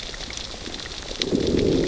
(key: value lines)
label: biophony, growl
recorder: SoundTrap 600 or HydroMoth